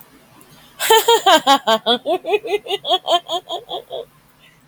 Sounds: Laughter